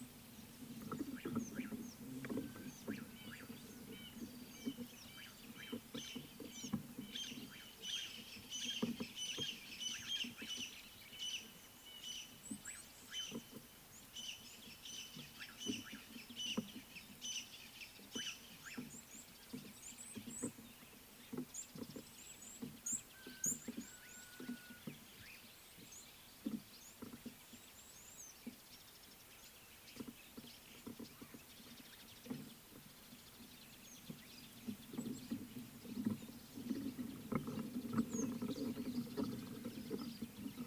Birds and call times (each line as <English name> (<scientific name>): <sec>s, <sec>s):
Red-fronted Barbet (Tricholaema diademata): 5.7s
Crested Francolin (Ortygornis sephaena): 8.8s, 15.8s
Red-cheeked Cordonbleu (Uraeginthus bengalus): 12.6s, 20.1s, 23.5s, 27.9s